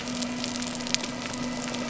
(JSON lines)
{"label": "biophony", "recorder": "SoundTrap 300"}